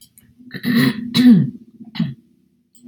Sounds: Throat clearing